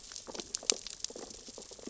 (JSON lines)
{"label": "biophony, sea urchins (Echinidae)", "recorder": "SoundTrap 600 or HydroMoth"}